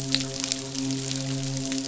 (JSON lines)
{"label": "biophony, midshipman", "recorder": "SoundTrap 500"}